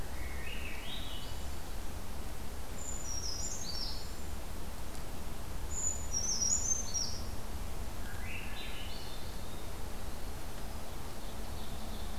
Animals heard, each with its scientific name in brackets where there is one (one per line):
Ovenbird (Seiurus aurocapilla)
Swainson's Thrush (Catharus ustulatus)
Brown Creeper (Certhia americana)
Cedar Waxwing (Bombycilla cedrorum)
Winter Wren (Troglodytes hiemalis)